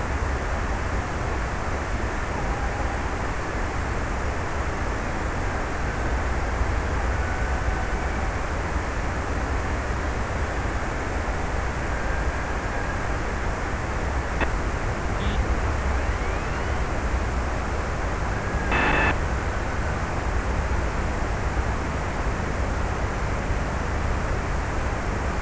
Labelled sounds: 4.8	6.5	killer whale, Bigg's (transient), 1.4 to 1.9 kHz
7.0	9.0	killer whale, Bigg's (transient), 0.51 to 1.8 kHz
11.3	13.3	killer whale, Bigg's (transient), 1.4 to 1.9 kHz

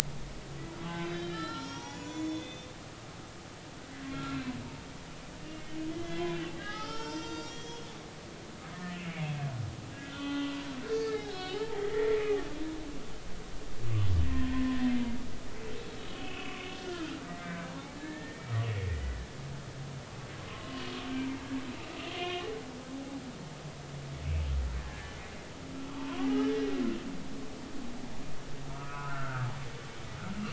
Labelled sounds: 0.8	2.7	humpback whale, 0.80 to 7.0 kHz
4.1	4.4	humpback whale, 1.3 to 1.4 kHz
5.9	7.9	humpback whale, 0.80 to 7.5 kHz
8.7	9.0	humpback whale, 1.7 to 1.9 kHz
10.0	10.6	humpback whale, 1.1 to 3.5 kHz
10.9	12.2	humpback whale, 0.80 to 4.5 kHz
14.2	14.7	humpback whale, 0.96 to 1.9 kHz
16.1	19.2	humpback whale, 1.0 to 3.0 kHz
20.5	20.9	humpback whale, 0.99 to 3.1 kHz
22.1	22.5	humpback whale, 2.0 to 3.0 kHz
24.8	25.2	humpback whale, 1.6 to 1.8 kHz
28.7	29.5	humpback whale, 1.2 to 1.7 kHz

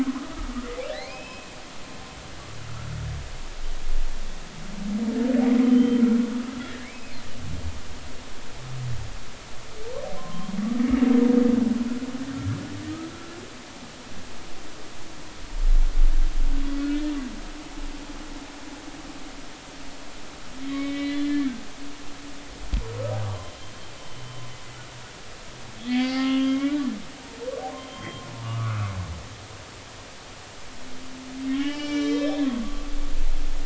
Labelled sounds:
0.0	1.5	humpback whale, 0.96 to 5.2 kHz
5.6	6.0	humpback whale, 3.0 to 3.2 kHz
6.9	7.2	humpback whale, 2.2 to 2.6 kHz
10.2	10.5	humpback whale, 0.99 to 1.2 kHz
20.7	21.4	humpback whale, 1.8 to 4.0 kHz
24.0	24.4	humpback whale, 3.0 to 3.1 kHz
25.8	26.8	humpback whale, 0.80 to 4.8 kHz
27.8	28.2	humpback whale, 3.1 to 3.2 kHz
29.4	29.9	humpback whale, 1.1 to 1.5 kHz
31.5	32.6	humpback whale, 0.90 to 7.4 kHz

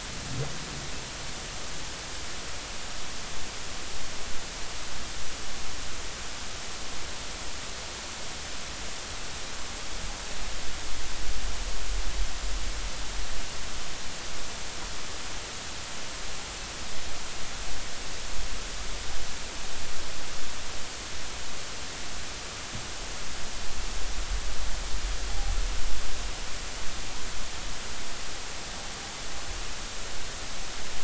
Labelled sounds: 25.3	25.5	noise likely from the mooring, 0.80 to 0.86 kHz

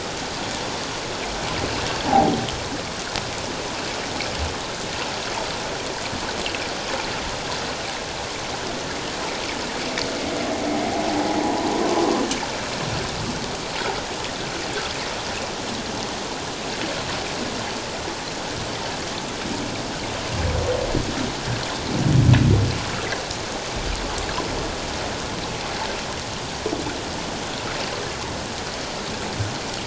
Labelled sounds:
2.1	2.3	humpback whale, 0.78 to 0.97 kHz
11.4	11.7	humpback whale, 0.78 to 1.0 kHz

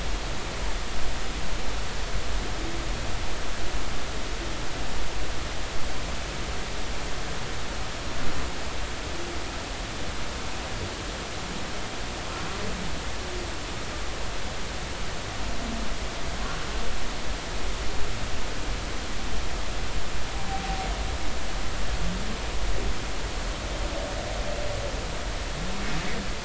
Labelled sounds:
20.5	20.8	humpback whale, 0.80 to 0.83 kHz

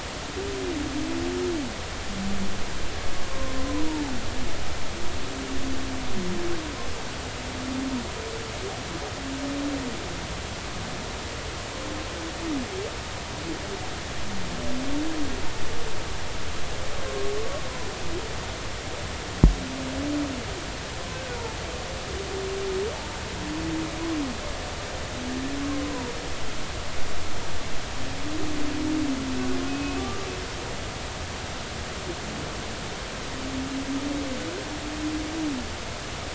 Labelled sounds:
3.1	3.5	humpback whale, 0.99 to 1.1 kHz
29.7	30.0	humpback whale, 2.5 to 2.6 kHz

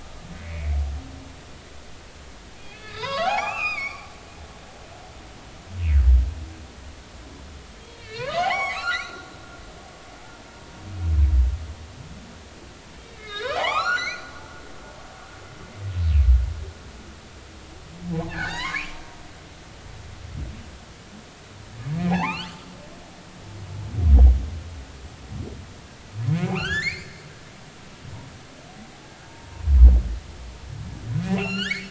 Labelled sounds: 0.3	0.7	humpback whale, 1.9 to 2.3 kHz
2.6	4.1	humpback whale, 0.80 to 7.2 kHz
7.8	9.3	humpback whale, 0.80 to 7.2 kHz
13.1	14.3	humpback whale, 0.80 to 7.3 kHz
18.1	19.0	humpback whale, 0.80 to 5.0 kHz
22.0	22.6	humpback whale, 0.80 to 3.5 kHz
26.3	27.2	humpback whale, 1.1 to 7.4 kHz
29.2	29.6	humpback whale, 0.86 to 1.1 kHz
31.3	31.8	humpback whale, 0.80 to 7.0 kHz

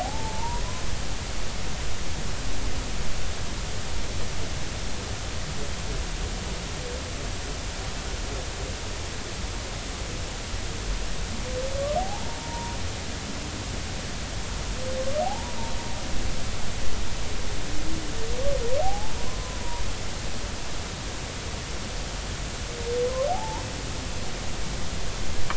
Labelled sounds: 0.0	0.6	humpback whale, 0.80 to 1.1 kHz
12.0	12.8	humpback whale, 0.80 to 1.0 kHz
15.2	15.6	humpback whale, 0.80 to 1.0 kHz
18.8	19.6	humpback whale, 0.80 to 1.1 kHz
23.3	23.6	humpback whale, 0.80 to 1.1 kHz

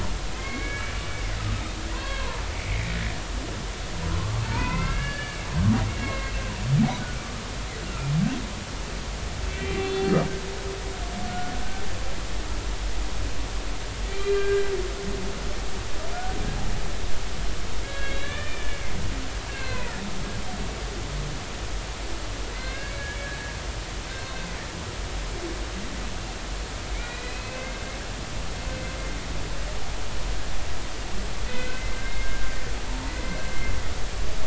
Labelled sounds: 0.3	1.4	humpback whale, 1.0 to 2.9 kHz
1.9	2.8	humpback whale, 0.83 to 3.4 kHz
4.1	6.3	humpback whale, 0.86 to 2.9 kHz
7.8	8.1	humpback whale, 1.2 to 1.5 kHz
9.4	10.1	humpback whale, 2.2 to 3.5 kHz
11.2	11.5	humpback whale, 1.4 to 1.5 kHz
14.1	14.7	humpback whale, 1.5 to 3.3 kHz
16.1	16.4	humpback whale, 1.4 to 1.5 kHz
17.8	20.0	humpback whale, 0.90 to 4.3 kHz
22.5	23.1	humpback whale, 1.5 to 2.3 kHz
26.9	27.9	humpback whale, 1.5 to 4.1 kHz
31.5	32.5	humpback whale, 1.4 to 2.6 kHz

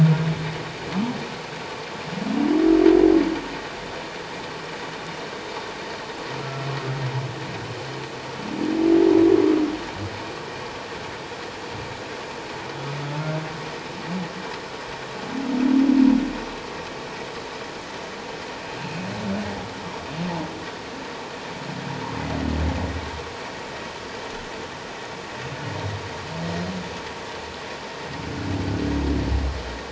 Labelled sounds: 6.4	6.7	humpback whale, 1.3 to 1.4 kHz

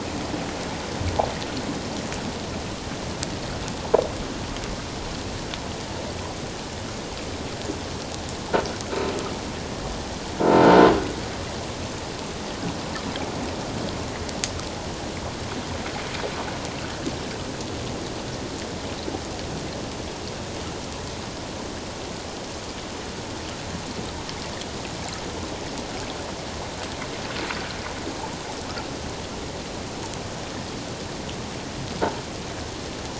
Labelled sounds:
10.4	10.7	croaking sound likely from a nearby submerged object, 1.3 to 1.5 kHz

